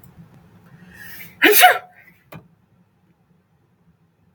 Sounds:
Sneeze